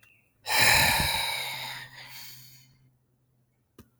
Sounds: Sigh